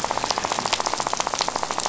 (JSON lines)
{"label": "biophony, rattle", "recorder": "SoundTrap 500"}